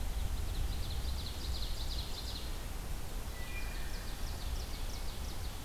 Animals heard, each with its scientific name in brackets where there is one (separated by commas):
Ovenbird (Seiurus aurocapilla), Wood Thrush (Hylocichla mustelina)